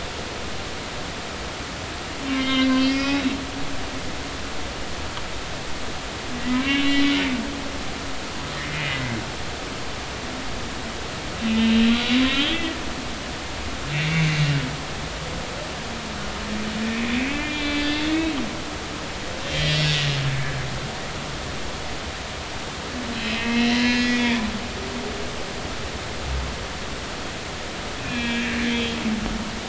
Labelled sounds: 2.4	3.2	humpback whale, 2.0 to 5.3 kHz
6.4	7.0	humpback whale, 0.96 to 3.1 kHz
8.5	9.2	humpback whale, 1.7 to 3.0 kHz
11.5	12.7	humpback whale, 2.8 to 3.6 kHz
13.9	14.5	humpback whale, 2.0 to 2.4 kHz
16.9	17.8	humpback whale, 2.1 to 4.2 kHz
18.1	18.3	humpback whale, 2.2 to 2.3 kHz
19.5	19.9	humpback whale, 1.9 to 2.8 kHz
23.2	24.4	humpback whale, 0.93 to 3.7 kHz
24.8	25.1	humpback whale, 1.7 to 1.8 kHz
28.0	29.0	humpback whale, 1.6 to 3.5 kHz

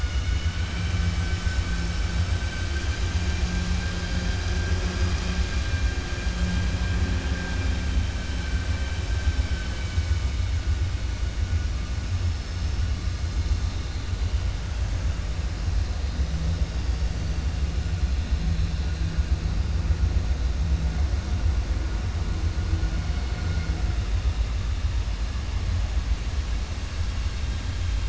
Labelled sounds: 0.2	1.7	vessel noise, 1.4 to 3.6 kHz
2.4	3.0	vessel noise, 1.5 to 3.2 kHz
9.3	10.2	vessel noise, 1.5 to 3.8 kHz

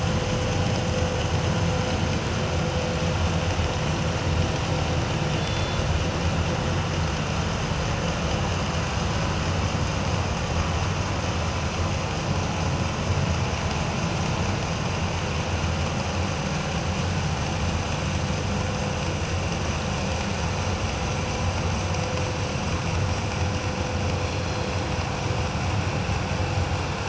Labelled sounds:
5.4	5.8	killer whale, northern resident, G clan, 3.4 to 4.2 kHz
24.2	24.7	killer whale, northern resident, G clan, 4.1 to 4.3 kHz

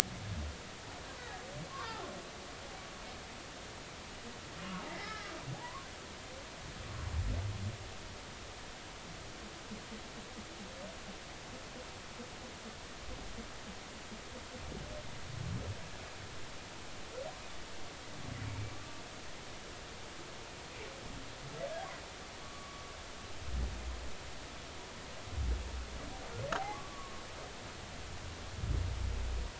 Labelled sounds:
1.2	1.4	humpback whale, 1.6 to 2.0 kHz
1.7	2.1	humpback whale, 0.80 to 1.6 kHz
4.8	5.9	humpback whale, 0.80 to 2.2 kHz
22.4	22.8	humpback whale, 1.0 to 1.2 kHz
26.6	27.2	humpback whale, 0.80 to 1.2 kHz

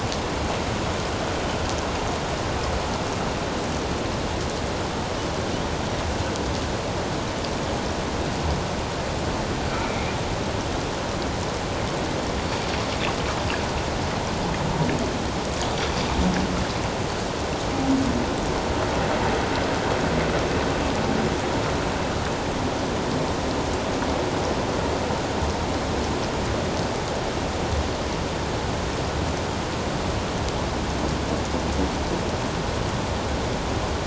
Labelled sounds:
9.7	10.0	humpback whale, 2.2 to 2.4 kHz

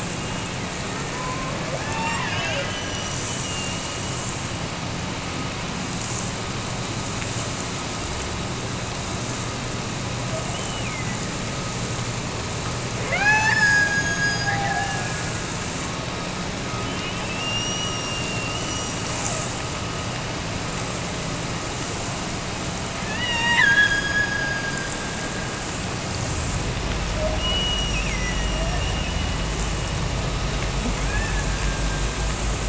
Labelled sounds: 0.1	4.3	killer whale, Bigg's (transient), Gulf of Alaska transient, 0.41 to 7.5 kHz
10.4	11.3	killer whale, Bigg's (transient), Gulf of Alaska transient, 1.7 to 3.1 kHz
13.0	15.4	killer whale, Bigg's (transient), Gulf of Alaska transient, 0.34 to 8.0 kHz
17.2	19.3	killer whale, Bigg's (transient), Gulf of Alaska transient, 2.4 to 6.0 kHz
23.0	25.0	killer whale, Bigg's (transient), Gulf of Alaska transient, 0.73 to 7.7 kHz
27.3	29.0	killer whale, Bigg's (transient), Gulf of Alaska transient, 1.7 to 6.0 kHz
31.0	32.1	killer whale, Bigg's (transient), Gulf of Alaska transient, 1.4 to 2.8 kHz

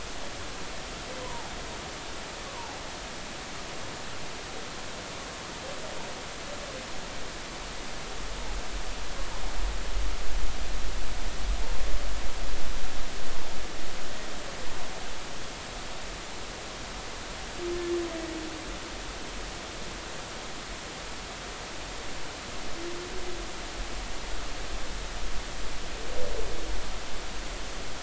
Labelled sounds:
1.2	1.5	humpback whale, 0.80 to 1.1 kHz
2.4	2.8	humpback whale, 0.80 to 1.2 kHz

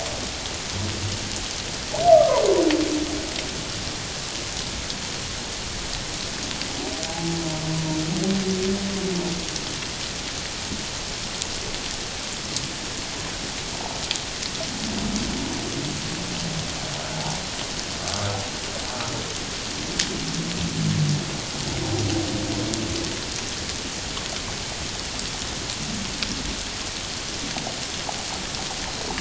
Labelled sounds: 2.1	2.4	humpback whale, 0.88 to 1.3 kHz
7.1	7.4	humpback whale, 0.78 to 0.88 kHz
17.1	17.4	humpback whale, 0.78 to 0.97 kHz

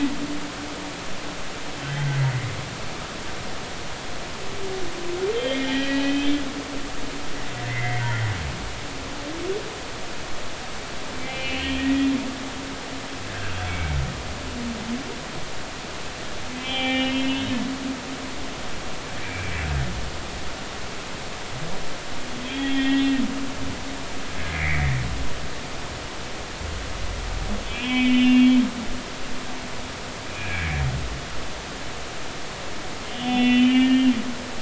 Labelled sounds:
1.9	2.2	humpback whale, 1.8 to 2.2 kHz
5.3	6.4	humpback whale, 1.6 to 3.5 kHz
7.7	8.1	humpback whale, 1.9 to 2.2 kHz
11.2	12.1	humpback whale, 1.8 to 3.0 kHz
13.3	14.0	humpback whale, 1.3 to 2.3 kHz
16.6	17.5	humpback whale, 0.80 to 3.5 kHz
18.0	19.5	humpback whale, 2.2 to 2.7 kHz
22.4	23.0	humpback whale, 1.8 to 3.6 kHz
24.5	24.8	humpback whale, 1.8 to 2.5 kHz
27.7	28.5	humpback whale, 2.0 to 3.6 kHz
30.3	30.8	humpback whale, 1.6 to 2.5 kHz
33.1	34.1	humpback whale, 1.7 to 3.6 kHz

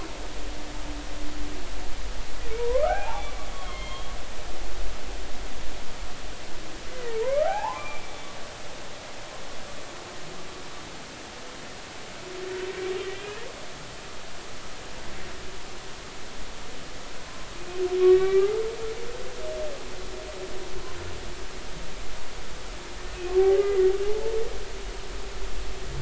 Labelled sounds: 2.6	4.1	humpback whale, 0.80 to 3.4 kHz
7.0	8.3	humpback whale, 0.80 to 3.6 kHz
13.1	13.5	humpback whale, 1.5 to 2.6 kHz
18.0	18.5	humpback whale, 1.1 to 2.4 kHz
24.0	24.4	humpback whale, 0.80 to 0.93 kHz

